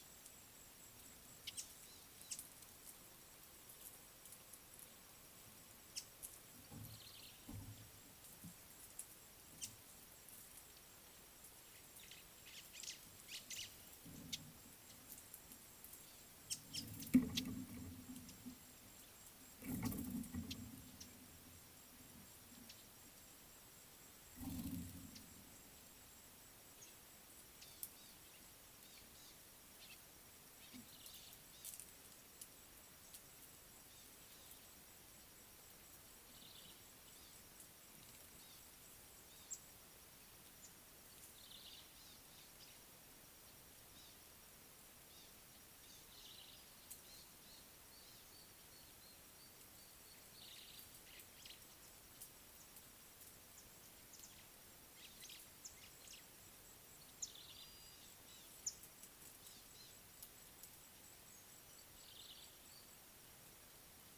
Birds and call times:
Lesser Masked-Weaver (Ploceus intermedius): 1.4s, 17.3s
Eastern Violet-backed Sunbird (Anthreptes orientalis): 1.9s, 38.4s, 45.1s, 48.0s
Brown-tailed Chat (Oenanthe scotocerca): 7.1s, 36.5s, 41.6s, 46.2s, 62.2s
White-browed Sparrow-Weaver (Plocepasser mahali): 12.8s

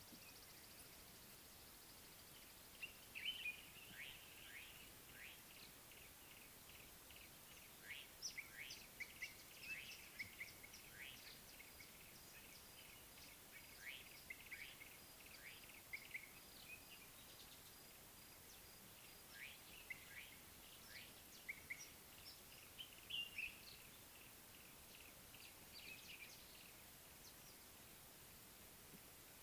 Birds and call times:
Red-faced Crombec (Sylvietta whytii): 0.7s
Common Bulbul (Pycnonotus barbatus): 3.2s, 23.2s
Slate-colored Boubou (Laniarius funebris): 4.0s, 10.1s, 21.4s
Yellow-breasted Apalis (Apalis flavida): 6.3s, 24.6s
Speckled Mousebird (Colius striatus): 8.2s

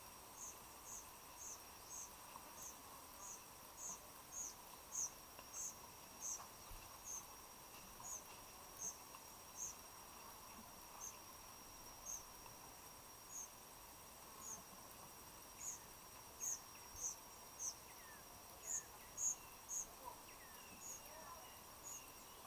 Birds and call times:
White-eyed Slaty-Flycatcher (Melaenornis fischeri): 4.1s
African Emerald Cuckoo (Chrysococcyx cupreus): 18.6s

